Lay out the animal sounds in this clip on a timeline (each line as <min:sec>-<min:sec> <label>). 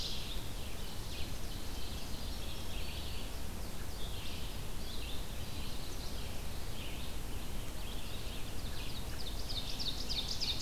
0:00.0-0:10.6 Red-eyed Vireo (Vireo olivaceus)
0:00.7-0:02.2 Ovenbird (Seiurus aurocapilla)
0:04.8-0:05.7 Eastern Wood-Pewee (Contopus virens)
0:08.2-0:10.6 Ovenbird (Seiurus aurocapilla)